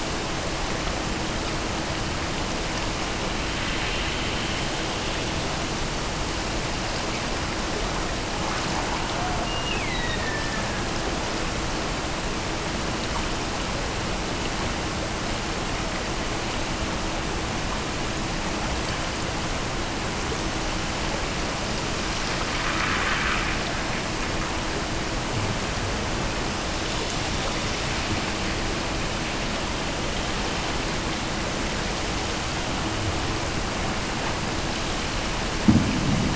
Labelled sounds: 9.4	10.9	killer whale, Bigg's (transient), Gulf of Alaska transient, 1.6 to 4.0 kHz

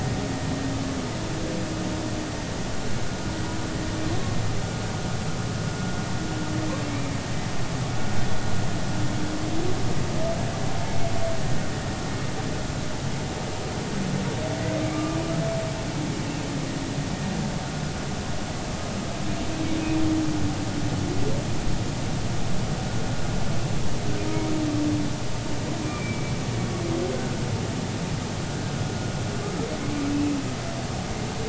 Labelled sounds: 6.8	7.1	humpback whale, 2.1 to 2.4 kHz
14.9	15.2	humpback whale, 1.1 to 1.2 kHz
25.8	26.3	humpback whale, 2.2 to 2.4 kHz
27.1	27.4	humpback whale, 1.4 to 1.6 kHz

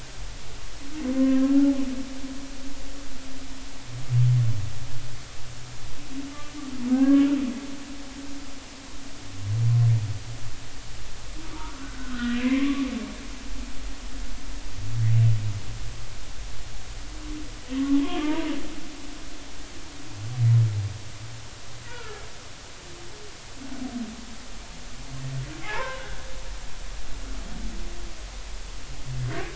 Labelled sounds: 1.1	1.6	humpback whale, 0.99 to 1.9 kHz
6.9	7.3	humpback whale, 0.99 to 1.7 kHz
11.6	12.8	humpback whale, 0.96 to 2.5 kHz
18.2	18.5	humpback whale, 0.86 to 1.3 kHz
21.9	22.2	humpback whale, 1.2 to 1.5 kHz
25.6	26.2	humpback whale, 0.80 to 1.7 kHz

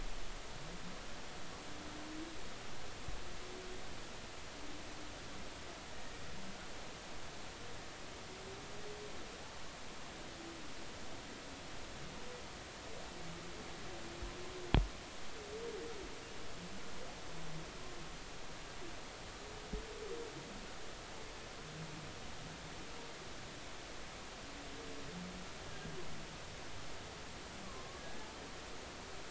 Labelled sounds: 5.9	6.2	humpback whale, 1.8 to 1.9 kHz
25.7	25.9	humpback whale, 1.5 to 1.7 kHz
27.6	28.0	humpback whale, 0.99 to 1.2 kHz

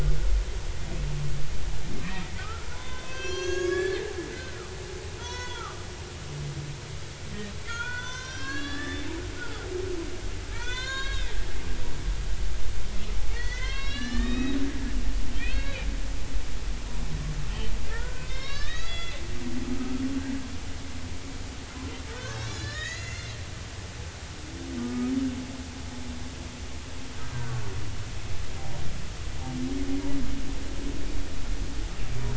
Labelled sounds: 2.4	4.0	humpback whale, 0.96 to 7.1 kHz
4.3	4.7	humpback whale, 1.1 to 1.6 kHz
5.2	6.6	humpback whale, 0.86 to 6.5 kHz
7.7	11.3	humpback whale, 0.90 to 7.1 kHz
13.3	15.8	humpback whale, 0.99 to 5.0 kHz
17.9	19.2	humpback whale, 1.0 to 5.6 kHz
22.1	23.3	humpback whale, 1.4 to 5.4 kHz
24.8	25.1	humpback whale, 1.1 to 1.3 kHz

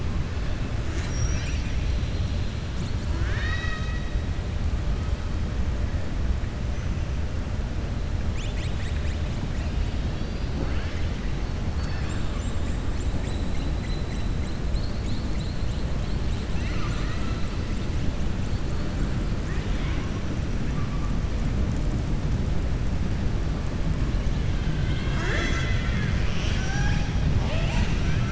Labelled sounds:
3.0	4.1	killer whale, southern resident, 0.96 to 6.4 kHz
19.4	20.1	killer whale, southern resident, 0.98 to 3.7 kHz

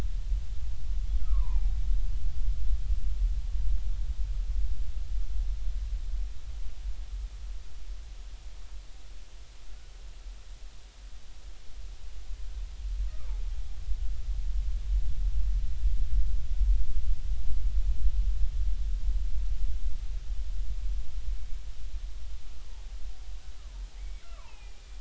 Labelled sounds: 1.2	1.8	killer whale, Bigg's (transient), 0.80 to 2.5 kHz
13.1	13.3	killer whale, Bigg's (transient), 1.1 to 1.3 kHz
23.6	24.8	killer whale, Bigg's (transient), 0.80 to 2.8 kHz

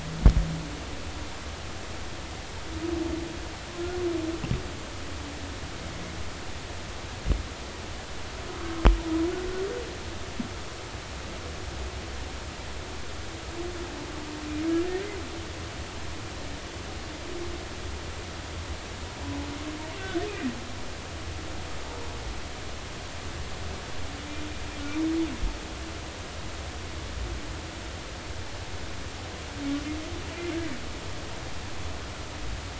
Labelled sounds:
20.0	20.2	humpback whale, 1.4 to 1.6 kHz

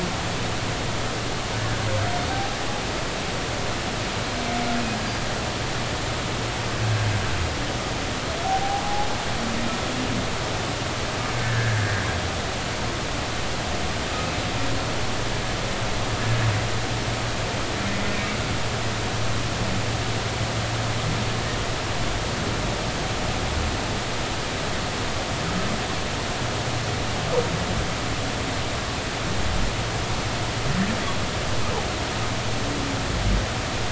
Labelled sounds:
2.3	2.6	humpback whale, 0.80 to 0.86 kHz
8.4	9.1	humpback whale, 0.80 to 0.90 kHz
11.4	12.0	humpback whale, 1.5 to 1.9 kHz

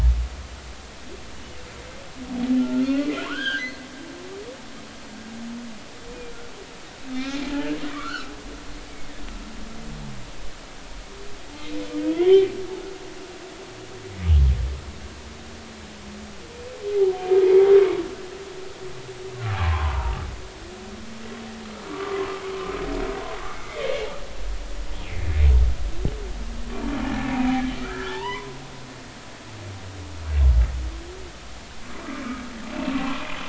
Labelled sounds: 2.6	3.7	humpback whale, 0.96 to 3.6 kHz
7.1	7.5	humpback whale, 2.2 to 2.5 kHz
7.9	8.3	humpback whale, 0.99 to 1.6 kHz
12.1	12.5	humpback whale, 1.9 to 3.4 kHz
17.4	17.7	humpback whale, 2.0 to 2.3 kHz
19.6	20.2	humpback whale, 0.80 to 1.2 kHz
21.9	22.3	humpback whale, 0.99 to 1.2 kHz
27.3	28.4	humpback whale, 0.80 to 2.4 kHz
29.1	29.5	humpback whale, 0.83 to 1.2 kHz
33.1	33.4	humpback whale, 2.4 to 2.6 kHz

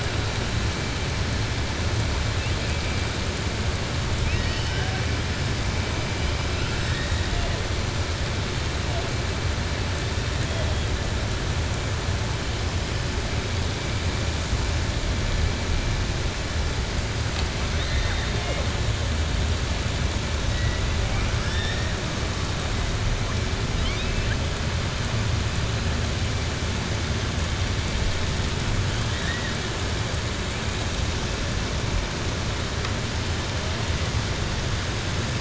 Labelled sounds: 6.5	7.2	killer whale, southern resident, 1.5 to 4.8 kHz
21.0	21.9	killer whale, southern resident, 1.3 to 5.7 kHz
23.7	24.4	killer whale, southern resident, 1.5 to 4.3 kHz

